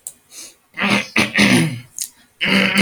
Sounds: Throat clearing